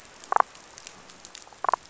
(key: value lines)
label: biophony, damselfish
recorder: SoundTrap 500